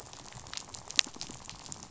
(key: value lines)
label: biophony, rattle
recorder: SoundTrap 500